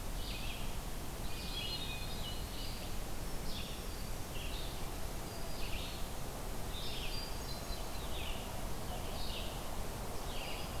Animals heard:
Eastern Wood-Pewee (Contopus virens)
Red-eyed Vireo (Vireo olivaceus)
Hermit Thrush (Catharus guttatus)
Black-throated Green Warbler (Setophaga virens)

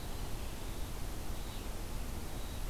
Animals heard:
Red-eyed Vireo (Vireo olivaceus)

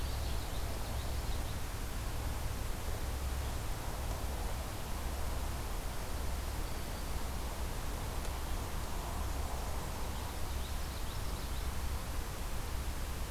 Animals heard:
Black-and-white Warbler (Mniotilta varia)
Common Yellowthroat (Geothlypis trichas)

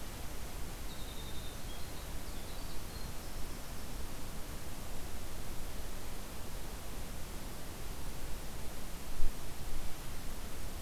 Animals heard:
Winter Wren (Troglodytes hiemalis)

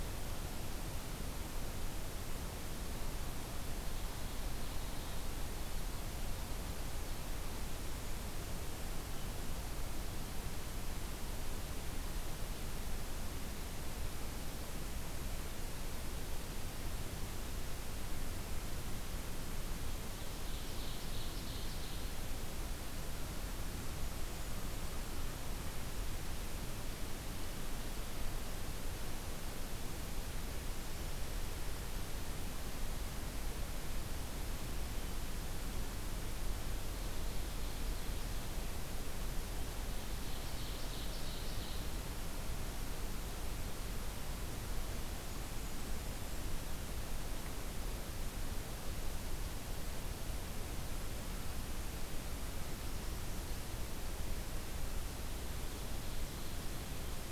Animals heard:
Blackburnian Warbler (Setophaga fusca)
Ovenbird (Seiurus aurocapilla)

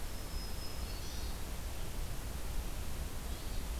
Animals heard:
Hermit Thrush (Catharus guttatus)
Black-throated Green Warbler (Setophaga virens)

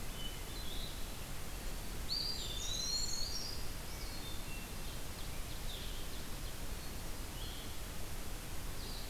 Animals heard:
Ovenbird (Seiurus aurocapilla)
Hermit Thrush (Catharus guttatus)
Brown Creeper (Certhia americana)
Blue-headed Vireo (Vireo solitarius)
Eastern Wood-Pewee (Contopus virens)

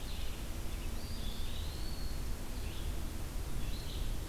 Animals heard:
Red-eyed Vireo (Vireo olivaceus)
Eastern Wood-Pewee (Contopus virens)

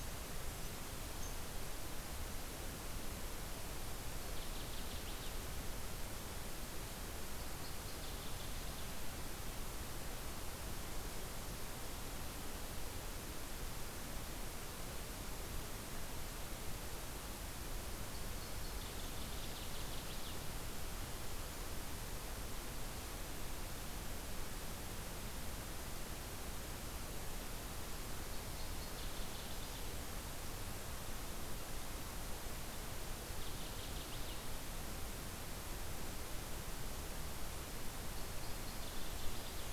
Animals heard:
Northern Waterthrush (Parkesia noveboracensis)
Red Squirrel (Tamiasciurus hudsonicus)

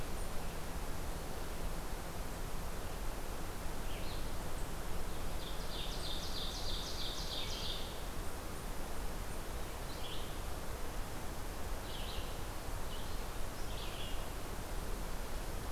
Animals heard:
Ovenbird (Seiurus aurocapilla)
Red-eyed Vireo (Vireo olivaceus)

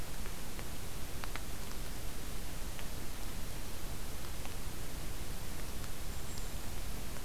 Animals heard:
Golden-crowned Kinglet (Regulus satrapa)

